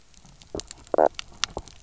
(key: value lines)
label: biophony, knock croak
recorder: SoundTrap 300